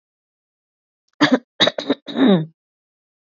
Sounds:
Throat clearing